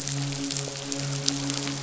{"label": "biophony, midshipman", "recorder": "SoundTrap 500"}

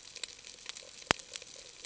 {"label": "ambient", "recorder": "HydroMoth"}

